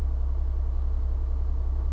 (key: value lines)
label: anthrophony, boat engine
recorder: SoundTrap 300